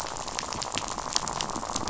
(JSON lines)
{"label": "biophony, rattle", "recorder": "SoundTrap 500"}